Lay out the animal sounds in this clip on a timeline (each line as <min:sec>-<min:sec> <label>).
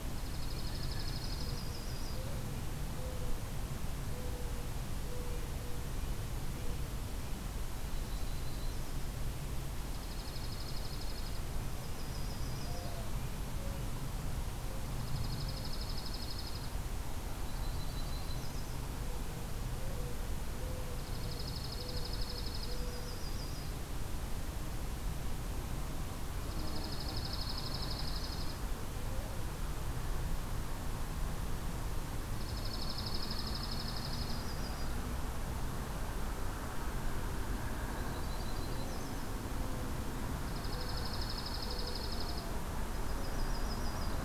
0:00.0-0:01.7 Dark-eyed Junco (Junco hyemalis)
0:01.1-0:02.3 Yellow-rumped Warbler (Setophaga coronata)
0:05.1-0:08.1 Red-breasted Nuthatch (Sitta canadensis)
0:07.9-0:09.1 Yellow-rumped Warbler (Setophaga coronata)
0:09.9-0:11.5 Dark-eyed Junco (Junco hyemalis)
0:11.4-0:13.9 Red-breasted Nuthatch (Sitta canadensis)
0:11.6-0:13.1 Yellow-rumped Warbler (Setophaga coronata)
0:14.9-0:16.8 Dark-eyed Junco (Junco hyemalis)
0:17.4-0:18.8 Yellow-rumped Warbler (Setophaga coronata)
0:20.9-0:22.8 Dark-eyed Junco (Junco hyemalis)
0:22.6-0:23.8 Yellow-rumped Warbler (Setophaga coronata)
0:26.4-0:28.6 Dark-eyed Junco (Junco hyemalis)
0:32.4-0:34.5 Dark-eyed Junco (Junco hyemalis)
0:34.0-0:35.0 Yellow-rumped Warbler (Setophaga coronata)
0:37.9-0:39.4 Yellow-rumped Warbler (Setophaga coronata)
0:40.4-0:42.5 Dark-eyed Junco (Junco hyemalis)
0:42.8-0:44.2 Yellow-rumped Warbler (Setophaga coronata)